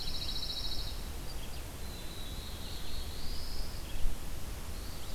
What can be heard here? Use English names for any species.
Pine Warbler, Red-eyed Vireo, Black-throated Blue Warbler, Eastern Wood-Pewee